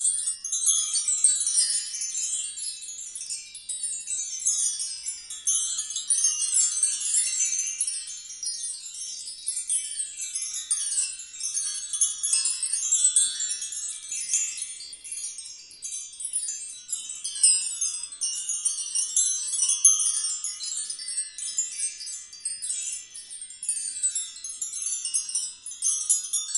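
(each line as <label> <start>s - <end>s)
A wind chime tinkles with a high metallic sound. 0.0s - 26.6s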